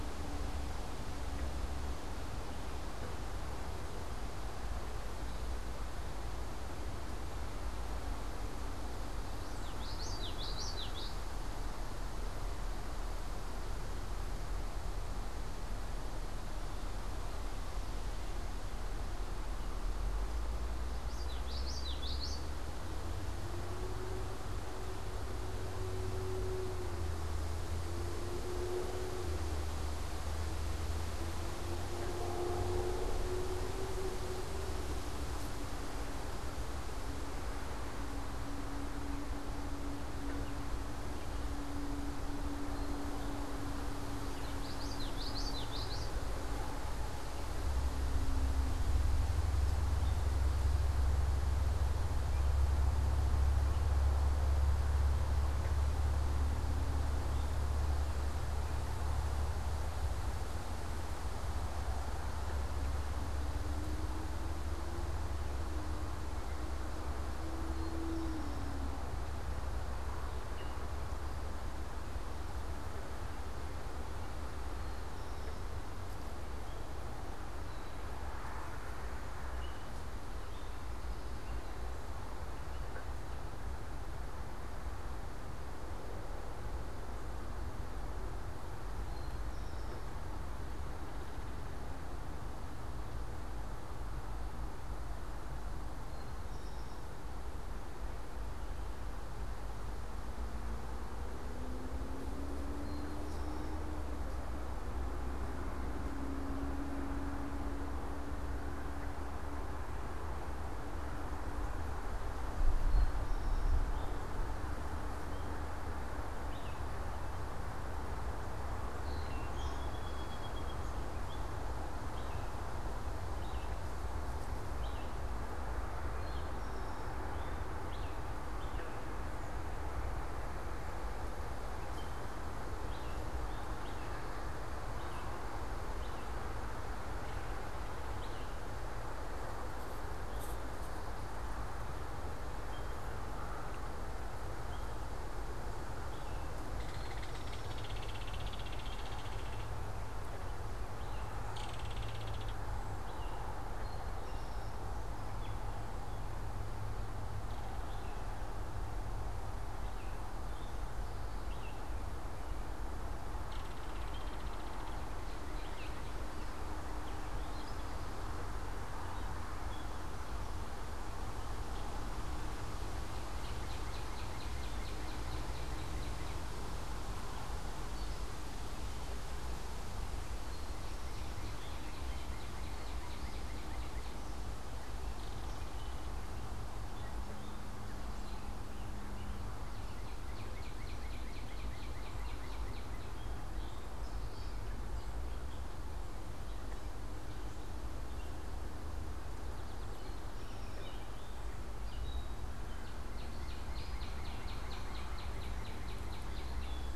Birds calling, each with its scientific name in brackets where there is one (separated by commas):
Song Sparrow (Melospiza melodia), Northern Cardinal (Cardinalis cardinalis), American Robin (Turdus migratorius), unidentified bird, Eastern Towhee (Pipilo erythrophthalmus), Belted Kingfisher (Megaceryle alcyon), Common Yellowthroat (Geothlypis trichas), Gray Catbird (Dumetella carolinensis)